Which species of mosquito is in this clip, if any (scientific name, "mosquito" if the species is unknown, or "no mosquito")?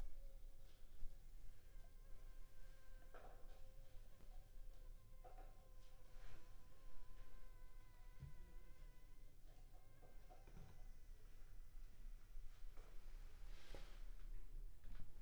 Anopheles funestus s.s.